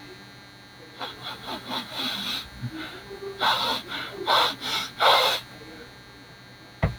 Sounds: Sniff